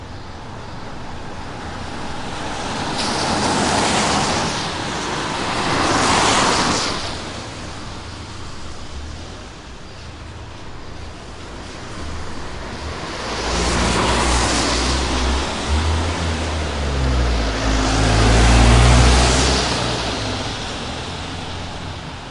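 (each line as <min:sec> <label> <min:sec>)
0:00.0 Cars driving on a wet road. 0:07.7
0:12.8 A car is driving on a wet road. 0:15.7
0:15.7 A truck is driving on a wet road. 0:22.3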